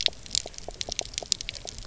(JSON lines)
{"label": "biophony, pulse", "recorder": "SoundTrap 300"}